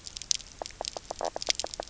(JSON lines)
{"label": "biophony, knock croak", "recorder": "SoundTrap 300"}